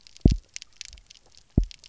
{"label": "biophony, double pulse", "recorder": "SoundTrap 300"}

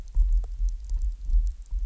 {"label": "anthrophony, boat engine", "recorder": "SoundTrap 300"}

